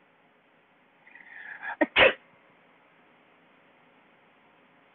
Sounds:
Sneeze